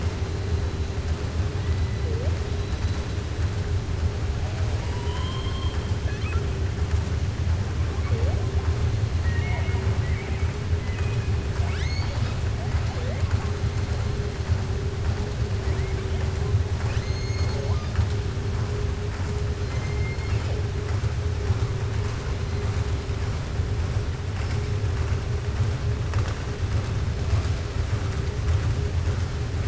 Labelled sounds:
5.0	5.8	killer whale, southern resident, 0.97 to 4.2 kHz
9.1	10.5	killer whale, southern resident, 0.66 to 3.7 kHz
11.5	12.4	killer whale, southern resident, 0.85 to 7.8 kHz
16.7	17.6	killer whale, southern resident, 0.90 to 7.0 kHz

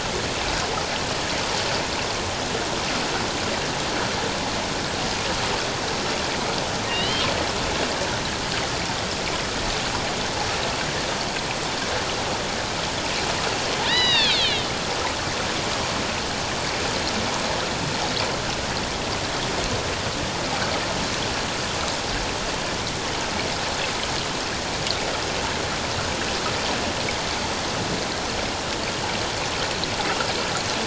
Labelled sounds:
6.9	7.3	killer whale, northern resident, A clan, AB subclan, 1.8 to 4.2 kHz
13.8	14.7	killer whale, northern resident, A clan, AB subclan, H01 pod, call N01iv, 1.6 to 5.0 kHz

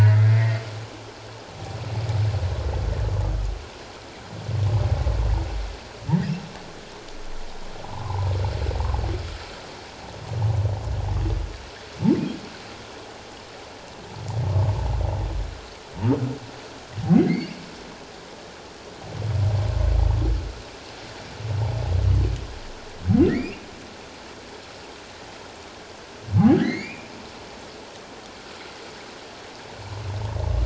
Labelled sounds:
7.8	8.3	humpback whale, 0.78 to 1.2 kHz
17.2	17.6	humpback whale, 1.9 to 4.8 kHz
23.3	23.7	humpback whale, 1.7 to 2.9 kHz
26.5	27.1	humpback whale, 1.5 to 5.0 kHz

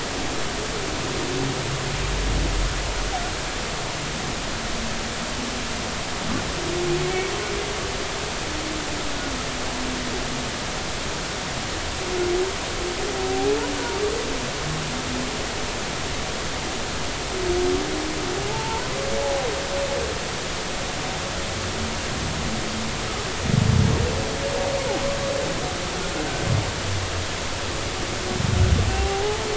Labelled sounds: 13.3	13.6	humpback whale, 0.80 to 0.86 kHz
18.5	19.5	humpback whale, 0.80 to 1.0 kHz
28.9	29.5	humpback whale, 0.80 to 0.99 kHz

